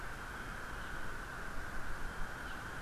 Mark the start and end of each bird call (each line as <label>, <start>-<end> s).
Apapane (Himatione sanguinea), 0.0-1.1 s
Apapane (Himatione sanguinea), 2.4-2.5 s